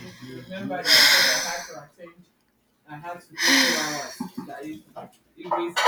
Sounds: Sigh